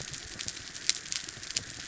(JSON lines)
{"label": "anthrophony, mechanical", "recorder": "SoundTrap 300"}